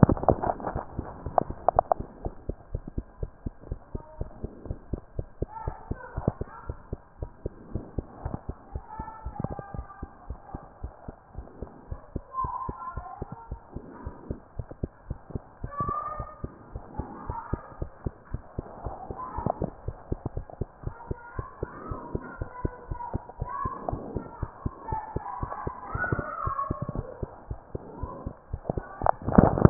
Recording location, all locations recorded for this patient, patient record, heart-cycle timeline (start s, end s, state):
mitral valve (MV)
aortic valve (AV)+pulmonary valve (PV)+tricuspid valve (TV)+mitral valve (MV)
#Age: Child
#Sex: Female
#Height: 111.0 cm
#Weight: 20.3 kg
#Pregnancy status: False
#Murmur: Absent
#Murmur locations: nan
#Most audible location: nan
#Systolic murmur timing: nan
#Systolic murmur shape: nan
#Systolic murmur grading: nan
#Systolic murmur pitch: nan
#Systolic murmur quality: nan
#Diastolic murmur timing: nan
#Diastolic murmur shape: nan
#Diastolic murmur grading: nan
#Diastolic murmur pitch: nan
#Diastolic murmur quality: nan
#Outcome: Abnormal
#Campaign: 2014 screening campaign
0.00	2.24	unannotated
2.24	2.34	S1
2.34	2.48	systole
2.48	2.56	S2
2.56	2.72	diastole
2.72	2.84	S1
2.84	2.96	systole
2.96	3.04	S2
3.04	3.20	diastole
3.20	3.30	S1
3.30	3.44	systole
3.44	3.54	S2
3.54	3.68	diastole
3.68	3.80	S1
3.80	3.92	systole
3.92	4.02	S2
4.02	4.18	diastole
4.18	4.30	S1
4.30	4.42	systole
4.42	4.50	S2
4.50	4.66	diastole
4.66	4.78	S1
4.78	4.90	systole
4.90	5.00	S2
5.00	5.16	diastole
5.16	5.28	S1
5.28	5.40	systole
5.40	5.48	S2
5.48	5.66	diastole
5.66	5.76	S1
5.76	5.88	systole
5.88	5.98	S2
5.98	6.16	diastole
6.16	6.26	S1
6.26	6.40	systole
6.40	6.48	S2
6.48	6.66	diastole
6.66	6.78	S1
6.78	6.90	systole
6.90	7.00	S2
7.00	7.20	diastole
7.20	7.30	S1
7.30	7.44	systole
7.44	7.52	S2
7.52	7.72	diastole
7.72	7.84	S1
7.84	7.96	systole
7.96	8.06	S2
8.06	8.24	diastole
8.24	8.36	S1
8.36	8.48	systole
8.48	8.56	S2
8.56	8.72	diastole
8.72	8.84	S1
8.84	8.98	systole
8.98	9.06	S2
9.06	9.24	diastole
9.24	9.34	S1
9.34	9.48	systole
9.48	9.56	S2
9.56	9.74	diastole
9.74	9.86	S1
9.86	10.00	systole
10.00	10.10	S2
10.10	10.28	diastole
10.28	10.38	S1
10.38	10.52	systole
10.52	10.62	S2
10.62	10.82	diastole
10.82	10.92	S1
10.92	11.06	systole
11.06	11.16	S2
11.16	11.36	diastole
11.36	11.46	S1
11.46	11.60	systole
11.60	11.70	S2
11.70	11.90	diastole
11.90	12.00	S1
12.00	12.14	systole
12.14	12.24	S2
12.24	12.42	diastole
12.42	12.52	S1
12.52	12.66	systole
12.66	12.76	S2
12.76	12.94	diastole
12.94	13.06	S1
13.06	13.20	systole
13.20	13.30	S2
13.30	13.50	diastole
13.50	13.60	S1
13.60	13.74	systole
13.74	13.82	S2
13.82	14.04	diastole
14.04	14.14	S1
14.14	14.28	systole
14.28	14.38	S2
14.38	14.58	diastole
14.58	14.68	S1
14.68	14.82	systole
14.82	14.90	S2
14.90	15.08	diastole
15.08	15.18	S1
15.18	15.32	systole
15.32	15.42	S2
15.42	15.62	diastole
15.62	15.72	S1
15.72	15.84	systole
15.84	15.94	S2
15.94	16.16	diastole
16.16	16.28	S1
16.28	16.42	systole
16.42	16.52	S2
16.52	16.72	diastole
16.72	16.84	S1
16.84	16.98	systole
16.98	17.06	S2
17.06	17.26	diastole
17.26	17.38	S1
17.38	17.52	systole
17.52	17.60	S2
17.60	17.80	diastole
17.80	17.90	S1
17.90	18.04	systole
18.04	18.14	S2
18.14	18.32	diastole
18.32	18.42	S1
18.42	18.56	systole
18.56	18.66	S2
18.66	18.84	diastole
18.84	18.96	S1
18.96	19.08	systole
19.08	19.16	S2
19.16	19.36	diastole
19.36	19.50	S1
19.50	19.60	systole
19.60	19.72	S2
19.72	19.86	diastole
19.86	19.96	S1
19.96	20.10	systole
20.10	20.18	S2
20.18	20.34	diastole
20.34	20.46	S1
20.46	20.60	systole
20.60	20.68	S2
20.68	20.84	diastole
20.84	20.94	S1
20.94	21.08	systole
21.08	21.18	S2
21.18	21.36	diastole
21.36	21.46	S1
21.46	21.60	systole
21.60	21.70	S2
21.70	21.88	diastole
21.88	22.00	S1
22.00	22.12	systole
22.12	22.22	S2
22.22	22.38	diastole
22.38	22.50	S1
22.50	22.62	systole
22.62	22.72	S2
22.72	22.90	diastole
22.90	23.00	S1
23.00	23.12	systole
23.12	23.22	S2
23.22	23.40	diastole
23.40	23.50	S1
23.50	23.64	systole
23.64	23.72	S2
23.72	23.90	diastole
23.90	24.02	S1
24.02	24.14	systole
24.14	24.26	S2
24.26	24.40	diastole
24.40	24.50	S1
24.50	24.64	systole
24.64	24.74	S2
24.74	24.90	diastole
24.90	25.00	S1
25.00	25.14	systole
25.14	25.24	S2
25.24	25.40	diastole
25.40	29.70	unannotated